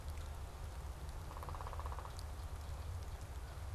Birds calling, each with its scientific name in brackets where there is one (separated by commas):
Downy Woodpecker (Dryobates pubescens)